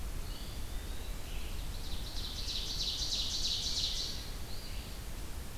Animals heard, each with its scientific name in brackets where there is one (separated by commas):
Ovenbird (Seiurus aurocapilla), Eastern Phoebe (Sayornis phoebe), Red-eyed Vireo (Vireo olivaceus), Eastern Wood-Pewee (Contopus virens)